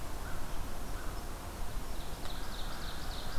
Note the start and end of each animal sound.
[0.00, 2.19] unknown mammal
[0.00, 3.38] American Crow (Corvus brachyrhynchos)
[1.52, 3.38] Ovenbird (Seiurus aurocapilla)

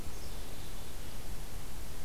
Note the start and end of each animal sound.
[0.00, 1.04] Black-capped Chickadee (Poecile atricapillus)

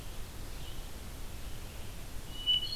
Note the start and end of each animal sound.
[0.00, 2.76] Red-eyed Vireo (Vireo olivaceus)
[2.21, 2.76] Hermit Thrush (Catharus guttatus)

